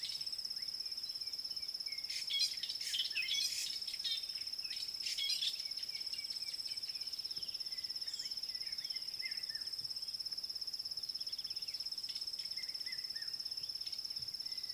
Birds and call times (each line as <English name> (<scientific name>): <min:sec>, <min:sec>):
Fork-tailed Drongo (Dicrurus adsimilis): 0:03.8
Red-chested Cuckoo (Cuculus solitarius): 0:13.0